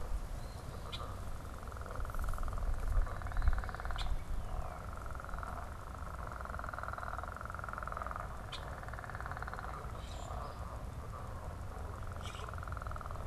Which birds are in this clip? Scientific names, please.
Sayornis phoebe, unidentified bird, Quiscalus quiscula